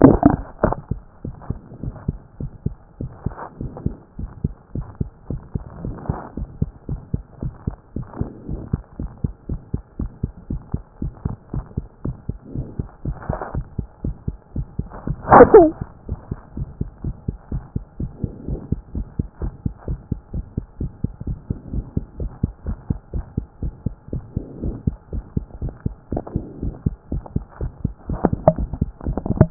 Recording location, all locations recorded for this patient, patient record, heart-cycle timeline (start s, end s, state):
mitral valve (MV)
aortic valve (AV)+pulmonary valve (PV)+tricuspid valve (TV)+mitral valve (MV)
#Age: Child
#Sex: Female
#Height: 114.0 cm
#Weight: 17.7 kg
#Pregnancy status: False
#Murmur: Present
#Murmur locations: aortic valve (AV)+pulmonary valve (PV)+tricuspid valve (TV)
#Most audible location: tricuspid valve (TV)
#Systolic murmur timing: Early-systolic
#Systolic murmur shape: Decrescendo
#Systolic murmur grading: I/VI
#Systolic murmur pitch: Low
#Systolic murmur quality: Blowing
#Diastolic murmur timing: nan
#Diastolic murmur shape: nan
#Diastolic murmur grading: nan
#Diastolic murmur pitch: nan
#Diastolic murmur quality: nan
#Outcome: Abnormal
#Campaign: 2014 screening campaign
0.00	0.49	unannotated
0.49	0.64	diastole
0.64	0.74	S1
0.74	0.90	systole
0.90	1.00	S2
1.00	1.24	diastole
1.24	1.36	S1
1.36	1.48	systole
1.48	1.58	S2
1.58	1.82	diastole
1.82	1.94	S1
1.94	2.08	systole
2.08	2.18	S2
2.18	2.40	diastole
2.40	2.50	S1
2.50	2.66	systole
2.66	2.74	S2
2.74	3.00	diastole
3.00	3.10	S1
3.10	3.24	systole
3.24	3.34	S2
3.34	3.60	diastole
3.60	3.72	S1
3.72	3.84	systole
3.84	3.94	S2
3.94	4.18	diastole
4.18	4.30	S1
4.30	4.44	systole
4.44	4.52	S2
4.52	4.76	diastole
4.76	4.86	S1
4.86	5.00	systole
5.00	5.10	S2
5.10	5.30	diastole
5.30	5.40	S1
5.40	5.54	systole
5.54	5.62	S2
5.62	5.82	diastole
5.82	5.96	S1
5.96	6.08	systole
6.08	6.18	S2
6.18	6.38	diastole
6.38	6.48	S1
6.48	6.60	systole
6.60	6.70	S2
6.70	6.90	diastole
6.90	7.00	S1
7.00	7.12	systole
7.12	7.22	S2
7.22	7.42	diastole
7.42	7.54	S1
7.54	7.66	systole
7.66	7.76	S2
7.76	7.96	diastole
7.96	8.06	S1
8.06	8.20	systole
8.20	8.28	S2
8.28	8.48	diastole
8.48	8.60	S1
8.60	8.72	systole
8.72	8.82	S2
8.82	9.00	diastole
9.00	9.10	S1
9.10	9.22	systole
9.22	9.32	S2
9.32	9.50	diastole
9.50	9.60	S1
9.60	9.72	systole
9.72	9.82	S2
9.82	10.00	diastole
10.00	10.10	S1
10.10	10.22	systole
10.22	10.32	S2
10.32	10.50	diastole
10.50	10.62	S1
10.62	10.72	systole
10.72	10.82	S2
10.82	11.02	diastole
11.02	11.12	S1
11.12	11.26	systole
11.26	11.36	S2
11.36	11.54	diastole
11.54	11.64	S1
11.64	11.76	systole
11.76	11.86	S2
11.86	12.04	diastole
12.04	12.16	S1
12.16	12.28	systole
12.28	12.38	S2
12.38	12.54	diastole
12.54	12.66	S1
12.66	12.78	systole
12.78	12.88	S2
12.88	13.06	diastole
13.06	13.16	S1
13.16	13.28	systole
13.28	13.38	S2
13.38	13.54	diastole
13.54	13.66	S1
13.66	13.78	systole
13.78	13.86	S2
13.86	14.04	diastole
14.04	14.16	S1
14.16	14.26	systole
14.26	14.36	S2
14.36	14.56	diastole
14.56	14.66	S1
14.66	14.78	systole
14.78	14.88	S2
14.88	15.05	diastole
15.05	15.14	S1
15.14	15.30	systole
15.30	15.36	S2
15.36	15.53	diastole
15.53	15.70	S1
15.70	15.82	systole
15.82	15.84	S2
15.84	16.09	diastole
16.08	16.18	S1
16.18	16.30	systole
16.30	16.38	S2
16.38	16.56	diastole
16.56	16.68	S1
16.68	16.80	systole
16.80	16.88	S2
16.88	17.04	diastole
17.04	17.16	S1
17.16	17.28	systole
17.28	17.36	S2
17.36	17.52	diastole
17.52	17.64	S1
17.64	17.74	systole
17.74	17.84	S2
17.84	18.00	diastole
18.00	18.10	S1
18.10	18.22	systole
18.22	18.32	S2
18.32	18.48	diastole
18.48	18.60	S1
18.60	18.70	systole
18.70	18.80	S2
18.80	18.96	diastole
18.96	19.06	S1
19.06	19.18	systole
19.18	19.28	S2
19.28	19.42	diastole
19.42	19.54	S1
19.54	19.64	systole
19.64	19.74	S2
19.74	19.88	diastole
19.88	20.00	S1
20.00	20.10	systole
20.10	20.20	S2
20.20	20.34	diastole
20.34	20.46	S1
20.46	20.56	systole
20.56	20.66	S2
20.66	20.80	diastole
20.80	20.92	S1
20.92	21.02	systole
21.02	21.12	S2
21.12	21.26	diastole
21.26	21.38	S1
21.38	21.48	systole
21.48	21.58	S2
21.58	21.72	diastole
21.72	21.86	S1
21.86	21.96	systole
21.96	22.04	S2
22.04	22.20	diastole
22.20	22.32	S1
22.32	22.42	systole
22.42	22.52	S2
22.52	22.66	diastole
22.66	22.78	S1
22.78	22.88	systole
22.88	22.98	S2
22.98	23.14	diastole
23.14	23.26	S1
23.26	23.36	systole
23.36	23.46	S2
23.46	23.62	diastole
23.62	23.74	S1
23.74	23.84	systole
23.84	23.94	S2
23.94	24.12	diastole
24.12	24.24	S1
24.24	24.36	systole
24.36	24.44	S2
24.44	24.62	diastole
24.62	24.76	S1
24.76	24.86	systole
24.86	24.96	S2
24.96	25.14	diastole
25.14	25.24	S1
25.24	25.36	systole
25.36	25.46	S2
25.46	25.62	diastole
25.62	25.74	S1
25.74	25.86	systole
25.86	25.94	S2
25.94	26.12	diastole
26.12	26.24	S1
26.24	26.34	systole
26.34	26.44	S2
26.44	26.62	diastole
26.62	26.74	S1
26.74	26.86	systole
26.86	26.96	S2
26.96	27.12	diastole
27.12	27.24	S1
27.24	27.34	systole
27.34	27.44	S2
27.44	27.60	diastole
27.60	27.72	S1
27.72	27.84	systole
27.84	27.94	S2
27.94	29.50	unannotated